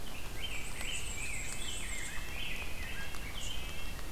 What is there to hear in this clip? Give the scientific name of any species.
Pheucticus ludovicianus, Mniotilta varia, Sitta canadensis